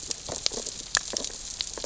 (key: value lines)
label: biophony, sea urchins (Echinidae)
recorder: SoundTrap 600 or HydroMoth